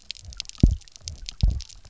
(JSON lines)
{"label": "biophony, double pulse", "recorder": "SoundTrap 300"}